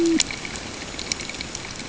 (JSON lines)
{"label": "ambient", "recorder": "HydroMoth"}